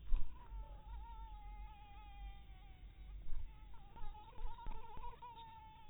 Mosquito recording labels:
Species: mosquito; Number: one; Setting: cup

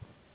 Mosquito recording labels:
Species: Anopheles gambiae s.s.; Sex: female; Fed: unfed; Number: one; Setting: insect culture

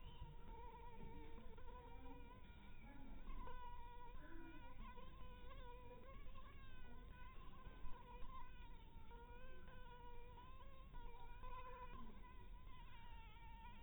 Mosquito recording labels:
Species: Anopheles dirus; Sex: female; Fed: unfed; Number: one; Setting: cup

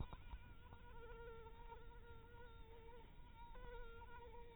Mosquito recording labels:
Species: mosquito; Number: one; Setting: cup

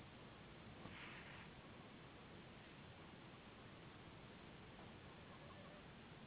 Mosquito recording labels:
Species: Anopheles gambiae s.s.; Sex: female; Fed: unfed; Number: one; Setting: insect culture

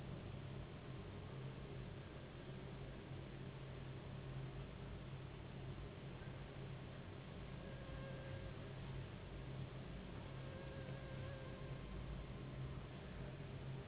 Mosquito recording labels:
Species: Anopheles gambiae s.s.; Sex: female; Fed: unfed; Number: one; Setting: insect culture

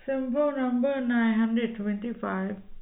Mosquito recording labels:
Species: no mosquito; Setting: cup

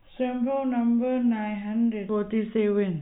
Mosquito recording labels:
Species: no mosquito; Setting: cup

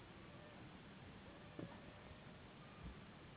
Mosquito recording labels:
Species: Anopheles gambiae s.s.; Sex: female; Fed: unfed; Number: one; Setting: insect culture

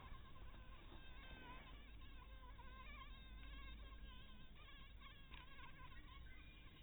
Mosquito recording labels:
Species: mosquito; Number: one; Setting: cup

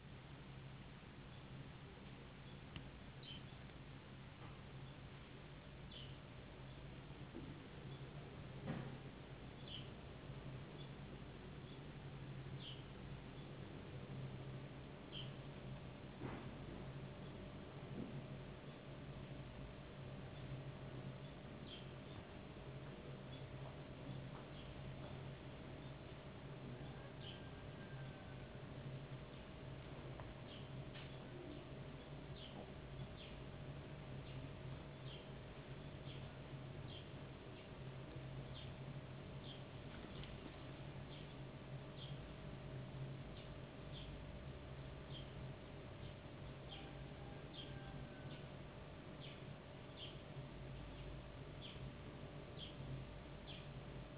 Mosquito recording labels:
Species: no mosquito; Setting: insect culture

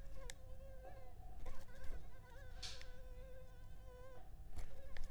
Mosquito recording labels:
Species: Anopheles arabiensis; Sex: female; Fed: unfed; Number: one; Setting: cup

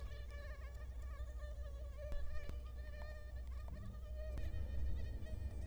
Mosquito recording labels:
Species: Culex quinquefasciatus; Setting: cup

